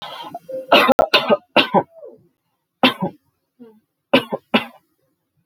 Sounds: Cough